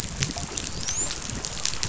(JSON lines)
{"label": "biophony, dolphin", "recorder": "SoundTrap 500"}